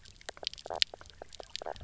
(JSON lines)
{"label": "biophony, knock croak", "recorder": "SoundTrap 300"}